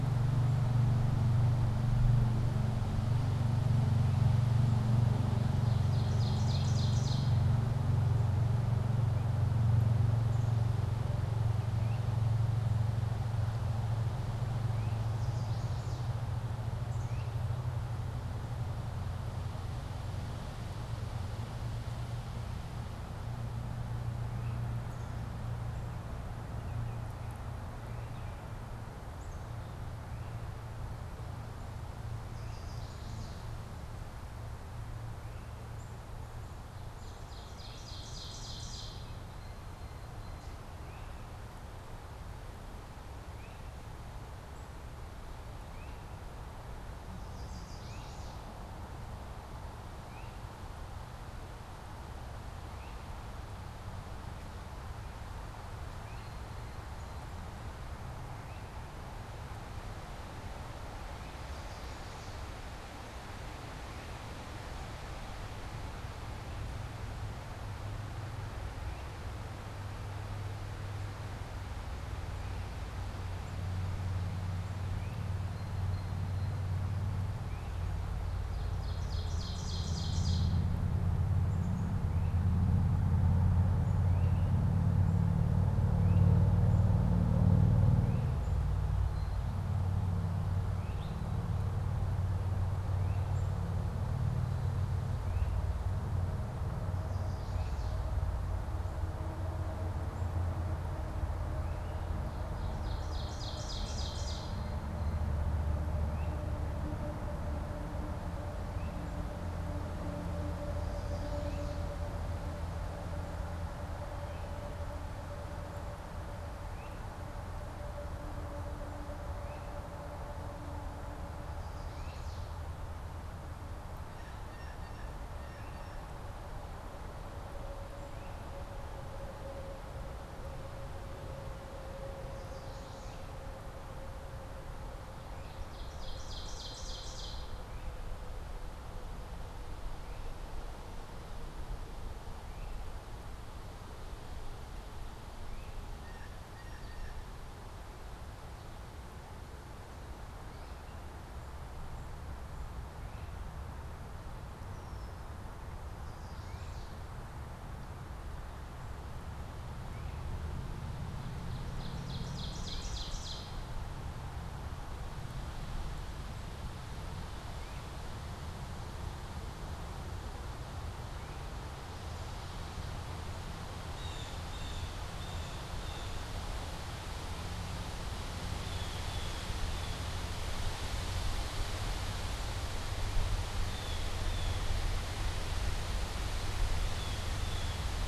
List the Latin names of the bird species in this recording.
Seiurus aurocapilla, Poecile atricapillus, Myiarchus crinitus, Setophaga pensylvanica, Cyanocitta cristata, Agelaius phoeniceus